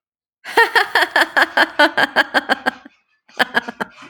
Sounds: Laughter